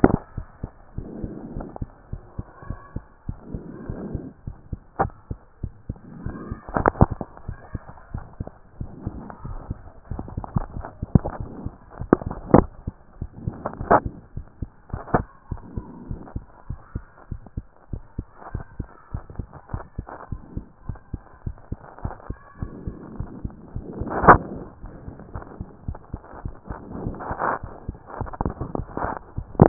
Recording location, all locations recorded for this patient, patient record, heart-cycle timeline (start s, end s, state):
mitral valve (MV)
aortic valve (AV)+pulmonary valve (PV)+tricuspid valve (TV)+mitral valve (MV)
#Age: Child
#Sex: Male
#Height: 142.0 cm
#Weight: 36.2 kg
#Pregnancy status: False
#Murmur: Absent
#Murmur locations: nan
#Most audible location: nan
#Systolic murmur timing: nan
#Systolic murmur shape: nan
#Systolic murmur grading: nan
#Systolic murmur pitch: nan
#Systolic murmur quality: nan
#Diastolic murmur timing: nan
#Diastolic murmur shape: nan
#Diastolic murmur grading: nan
#Diastolic murmur pitch: nan
#Diastolic murmur quality: nan
#Outcome: Abnormal
#Campaign: 2014 screening campaign
0.00	14.24	unannotated
14.24	14.36	diastole
14.36	14.46	S1
14.46	14.60	systole
14.60	14.70	S2
14.70	14.92	diastole
14.92	15.02	S1
15.02	15.12	systole
15.12	15.26	S2
15.26	15.50	diastole
15.50	15.60	S1
15.60	15.74	systole
15.74	15.84	S2
15.84	16.08	diastole
16.08	16.20	S1
16.20	16.34	systole
16.34	16.44	S2
16.44	16.68	diastole
16.68	16.80	S1
16.80	16.94	systole
16.94	17.04	S2
17.04	17.30	diastole
17.30	17.40	S1
17.40	17.56	systole
17.56	17.66	S2
17.66	17.92	diastole
17.92	18.02	S1
18.02	18.16	systole
18.16	18.26	S2
18.26	18.52	diastole
18.52	18.64	S1
18.64	18.78	systole
18.78	18.88	S2
18.88	19.12	diastole
19.12	19.24	S1
19.24	19.38	systole
19.38	19.46	S2
19.46	19.72	diastole
19.72	19.84	S1
19.84	19.98	systole
19.98	20.06	S2
20.06	20.30	diastole
20.30	20.42	S1
20.42	20.56	systole
20.56	20.64	S2
20.64	20.88	diastole
20.88	20.98	S1
20.98	21.12	systole
21.12	21.22	S2
21.22	21.44	diastole
21.44	21.56	S1
21.56	21.70	systole
21.70	21.78	S2
21.78	22.02	diastole
22.02	22.14	S1
22.14	22.28	systole
22.28	22.38	S2
22.38	22.62	diastole
22.62	22.72	S1
22.72	22.86	systole
22.86	22.94	S2
22.94	23.18	diastole
23.18	23.28	S1
23.28	23.44	systole
23.44	23.52	S2
23.52	23.76	diastole
23.76	29.68	unannotated